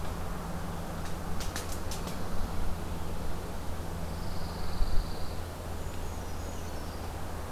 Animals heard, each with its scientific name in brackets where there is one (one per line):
Brown Creeper (Certhia americana)
Pine Warbler (Setophaga pinus)